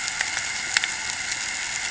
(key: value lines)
label: anthrophony, boat engine
recorder: HydroMoth